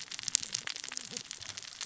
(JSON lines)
{"label": "biophony, cascading saw", "recorder": "SoundTrap 600 or HydroMoth"}